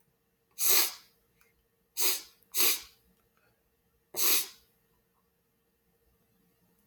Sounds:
Sniff